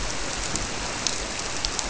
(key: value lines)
label: biophony
recorder: SoundTrap 300